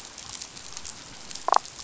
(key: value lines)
label: biophony, damselfish
recorder: SoundTrap 500